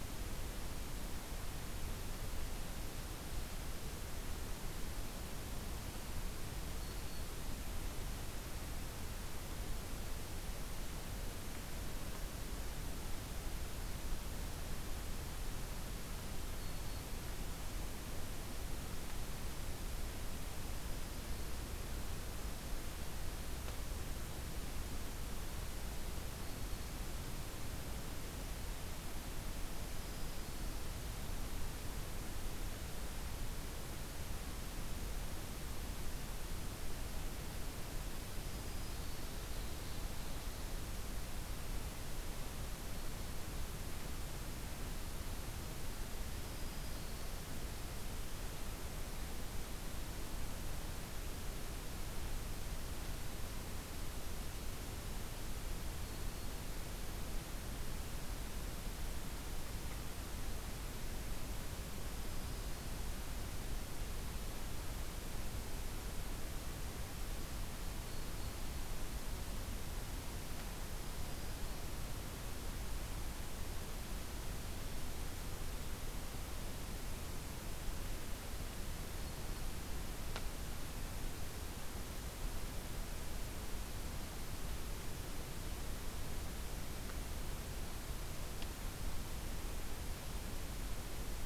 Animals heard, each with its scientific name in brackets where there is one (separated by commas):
Ovenbird (Seiurus aurocapilla), Black-throated Green Warbler (Setophaga virens)